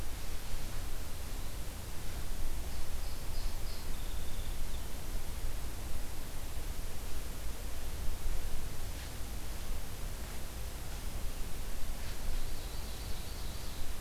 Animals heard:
Ovenbird (Seiurus aurocapilla), Song Sparrow (Melospiza melodia)

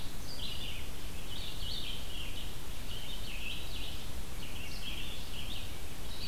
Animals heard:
Red-eyed Vireo (Vireo olivaceus)

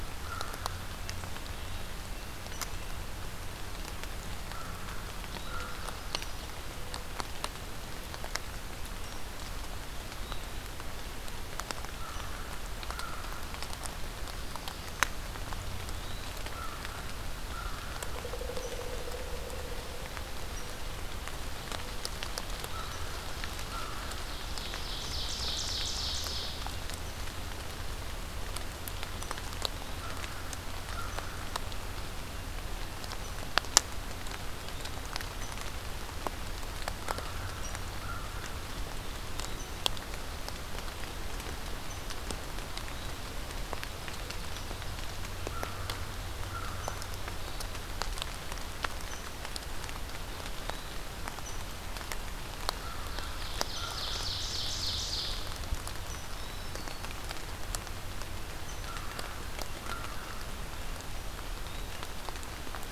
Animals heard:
American Crow (Corvus brachyrhynchos), Ovenbird (Seiurus aurocapilla), Black-throated Green Warbler (Setophaga virens), Eastern Wood-Pewee (Contopus virens)

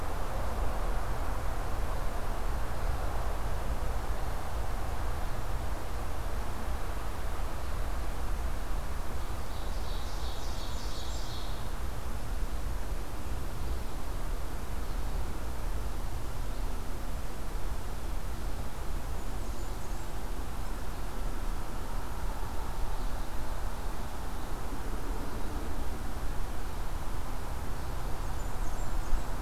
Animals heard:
Ovenbird (Seiurus aurocapilla), Blackburnian Warbler (Setophaga fusca)

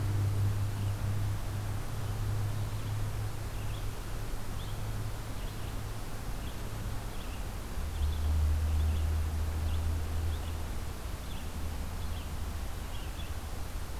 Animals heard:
Red-eyed Vireo (Vireo olivaceus)

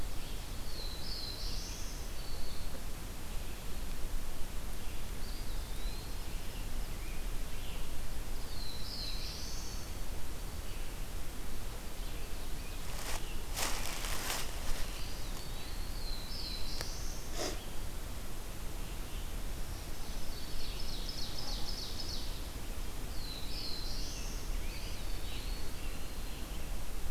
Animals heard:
Scarlet Tanager (Piranga olivacea), Eastern Wood-Pewee (Contopus virens), Ovenbird (Seiurus aurocapilla), Black-throated Green Warbler (Setophaga virens), Black-throated Blue Warbler (Setophaga caerulescens)

